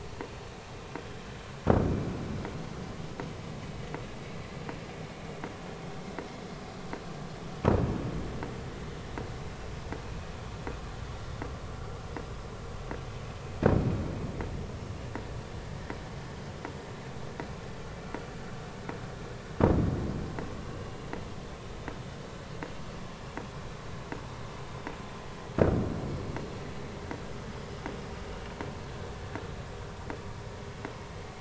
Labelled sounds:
10.0	10.3	vessel noise, 2.4 to 2.7 kHz

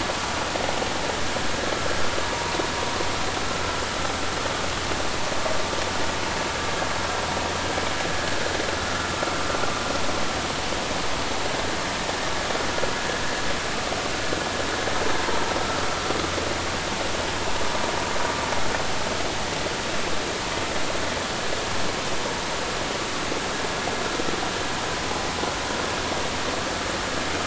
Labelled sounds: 2.2	2.5	vessel noise, 0.90 to 1.1 kHz

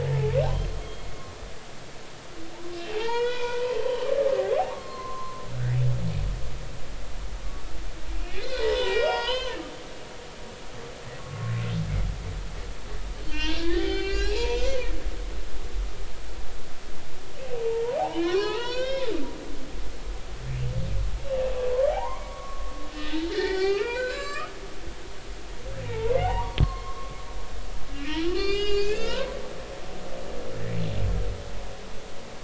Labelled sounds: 0.0	1.1	humpback whale, 0.80 to 3.3 kHz
2.8	4.1	humpback whale, 0.80 to 4.9 kHz
4.7	5.4	humpback whale, 0.99 to 4.4 kHz
8.4	9.6	humpback whale, 0.80 to 6.8 kHz
11.2	11.5	humpback whale, 1.0 to 1.2 kHz
13.2	14.9	humpback whale, 0.80 to 5.8 kHz
18.0	19.1	humpback whale, 0.80 to 6.0 kHz
19.6	20.1	humpback whale, 1.8 to 2.3 kHz
21.9	24.5	humpback whale, 0.80 to 8.0 kHz
25.9	27.2	humpback whale, 0.80 to 4.3 kHz
27.9	29.4	humpback whale, 0.90 to 7.3 kHz

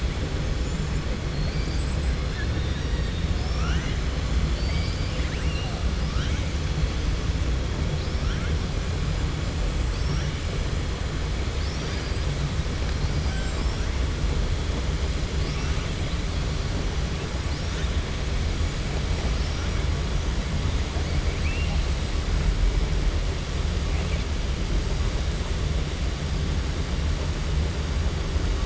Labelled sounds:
1.3	1.8	killer whale, 4.2 to 5.1 kHz
3.3	4.0	killer whale, 0.72 to 6.2 kHz
4.4	5.7	killer whale, 1.7 to 5.5 kHz
15.5	15.9	killer whale, 2.2 to 3.3 kHz

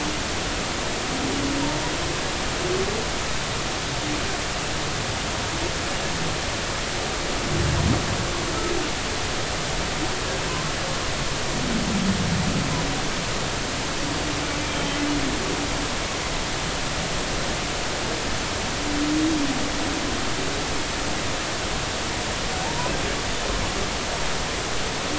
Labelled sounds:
14.7	15.1	humpback whale, 1.9 to 3.3 kHz

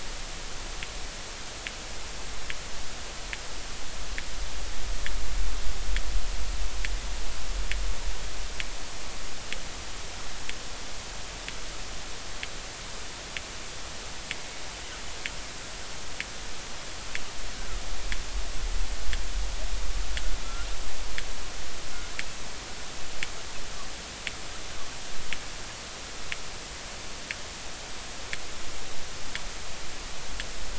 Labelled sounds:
20.4	20.7	killer whale, northern resident, G clan, call N24i, 1.3 to 1.5 kHz

